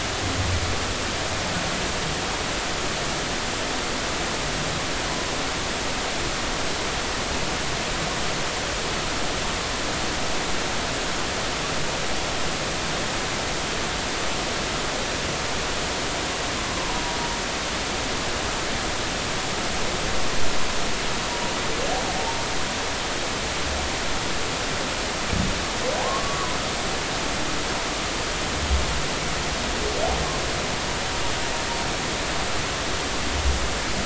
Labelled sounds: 26.0	26.6	humpback whale, 0.96 to 1.2 kHz

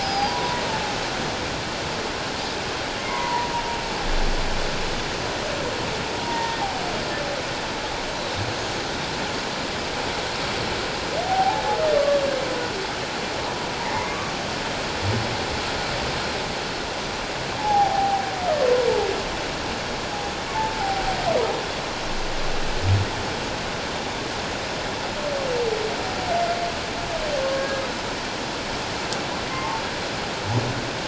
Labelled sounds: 0.0	0.6	humpback whale, 0.78 to 5.2 kHz
3.0	3.5	humpback whale, 0.84 to 2.2 kHz
6.2	6.6	humpback whale, 0.88 to 1.9 kHz
11.2	12.2	humpback whale, 0.78 to 1.2 kHz
13.8	14.3	humpback whale, 0.81 to 1.2 kHz
17.6	18.2	humpback whale, 0.78 to 0.91 kHz
20.8	21.0	humpback whale, 0.78 to 0.88 kHz
27.4	27.8	humpback whale, 1.0 to 1.7 kHz
29.5	29.8	humpback whale, 0.81 to 1.1 kHz

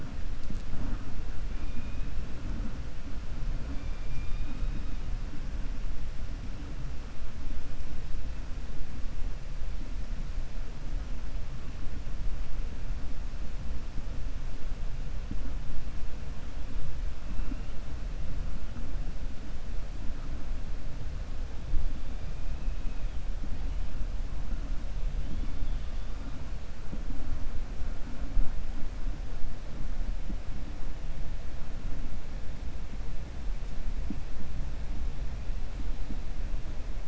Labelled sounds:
1.5	2.1	killer whale, 1.8 to 2.6 kHz
3.7	4.9	killer whale, 2.3 to 3.7 kHz

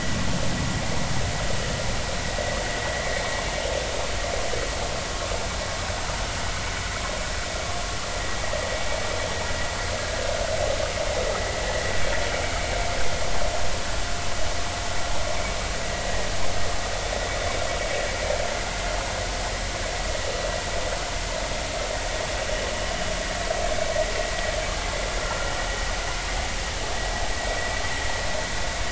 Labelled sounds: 25.2	25.5	vessel noise, 1.3 to 1.5 kHz

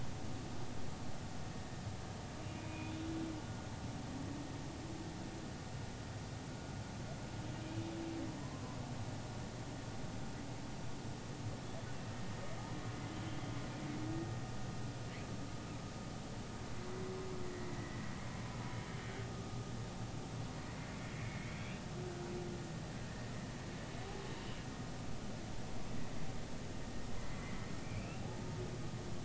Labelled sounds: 2.6	3.1	humpback whale, 2.4 to 3.7 kHz
17.4	17.7	humpback whale, 1.8 to 2.0 kHz
21.2	21.6	humpback whale, 2.1 to 2.3 kHz
27.3	28.4	humpback whale, 0.80 to 2.8 kHz

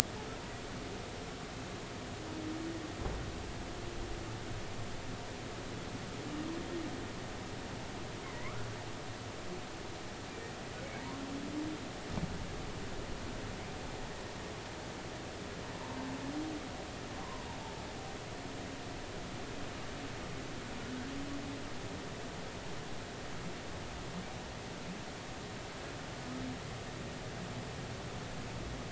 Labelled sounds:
8.3	8.7	humpback whale, 0.93 to 1.5 kHz
17.2	17.5	humpback whale, 0.93 to 1.1 kHz

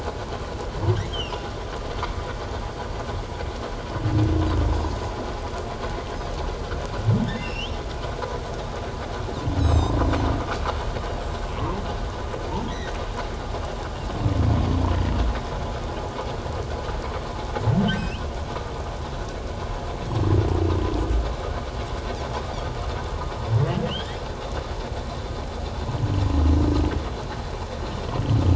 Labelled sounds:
1.1	1.4	humpback whale, 2.5 to 3.3 kHz
7.2	7.8	humpback whale, 2.4 to 5.6 kHz
9.6	10.0	Pacific white-sided dolphin, 3.6 to 7.9 kHz
11.6	11.8	humpback whale, 0.81 to 1.2 kHz
17.8	18.2	humpback whale, 1.5 to 3.1 kHz
23.8	24.2	humpback whale, 1.4 to 3.6 kHz

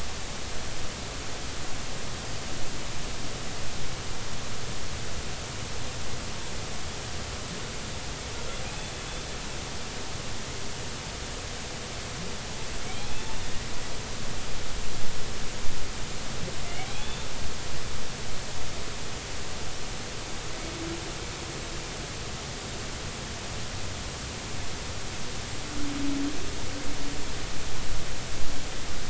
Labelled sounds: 12.8	13.3	humpback whale, 2.1 to 2.7 kHz
16.6	17.3	humpback whale, 2.0 to 3.6 kHz

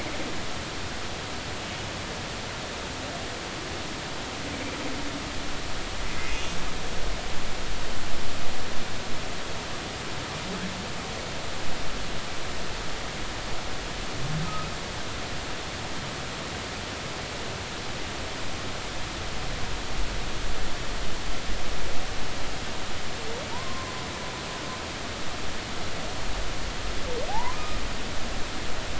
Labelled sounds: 6.3	6.6	humpback whale, 2.8 to 2.9 kHz
23.5	23.9	humpback whale, 0.86 to 1.1 kHz
27.3	27.8	humpback whale, 0.80 to 1.3 kHz

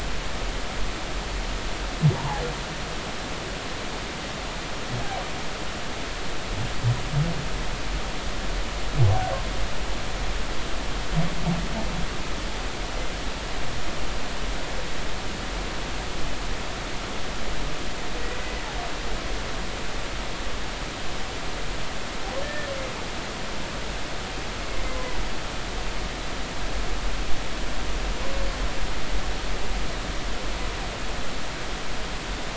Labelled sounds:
2.1	2.4	humpback whale, 0.80 to 1.1 kHz
18.4	18.6	humpback whale, 1.9 to 2.0 kHz
22.4	22.7	humpback whale, 1.7 to 1.9 kHz

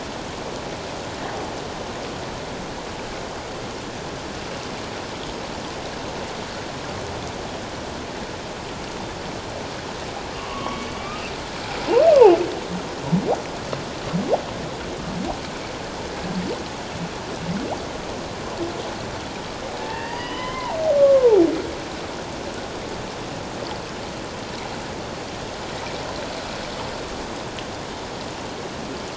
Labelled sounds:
10.3	10.9	humpback whale, 0.94 to 2.3 kHz
19.8	21.4	humpback whale, 0.78 to 5.0 kHz

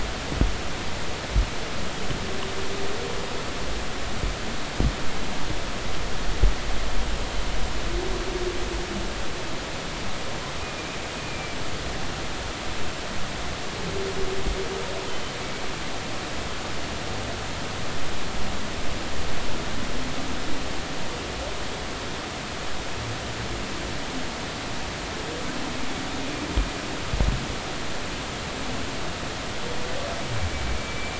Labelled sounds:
10.6	10.9	humpback whale, 2.3 to 2.5 kHz
11.2	11.6	humpback whale, 2.3 to 2.5 kHz
30.8	31.1	humpback whale, 2.2 to 2.4 kHz

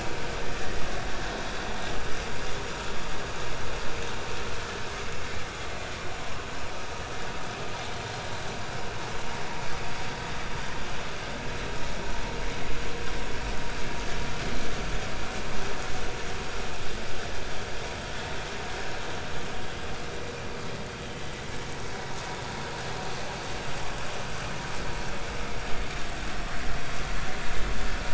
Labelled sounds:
0.4	0.7	vessel noise, 1.6 to 1.9 kHz
4.6	4.9	vessel noise, 3.0 to 3.1 kHz

